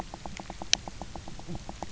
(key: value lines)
label: biophony, knock croak
recorder: SoundTrap 300